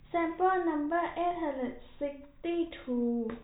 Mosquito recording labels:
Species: no mosquito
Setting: cup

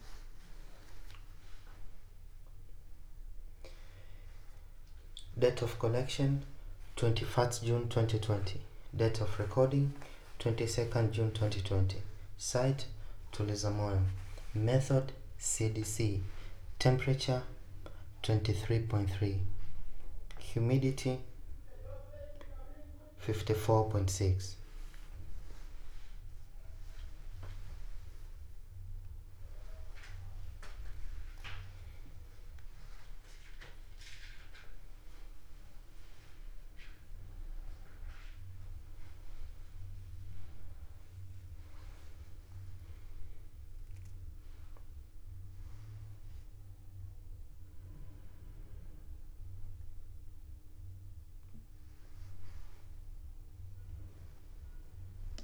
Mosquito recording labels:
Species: no mosquito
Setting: cup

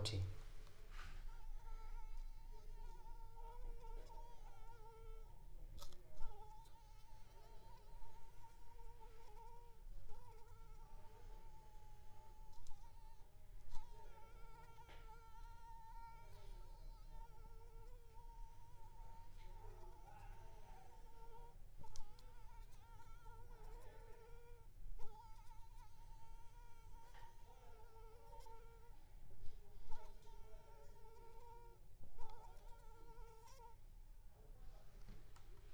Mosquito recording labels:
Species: Anopheles arabiensis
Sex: female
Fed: unfed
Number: one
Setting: cup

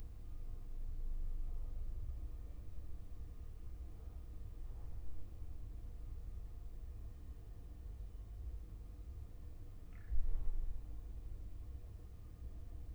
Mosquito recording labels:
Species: no mosquito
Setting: cup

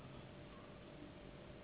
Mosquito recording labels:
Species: Anopheles gambiae s.s.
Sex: female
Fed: unfed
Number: one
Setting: insect culture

